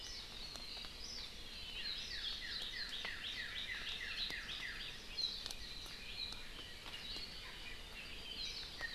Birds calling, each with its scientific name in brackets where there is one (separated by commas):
Warbling White-eye (Zosterops japonicus), Northern Cardinal (Cardinalis cardinalis)